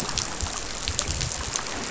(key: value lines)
label: biophony
recorder: SoundTrap 500